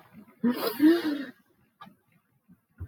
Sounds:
Sniff